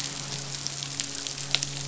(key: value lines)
label: biophony, midshipman
recorder: SoundTrap 500